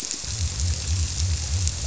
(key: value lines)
label: biophony
recorder: SoundTrap 300